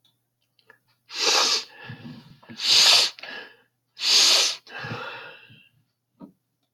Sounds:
Sniff